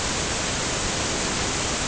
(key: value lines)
label: ambient
recorder: HydroMoth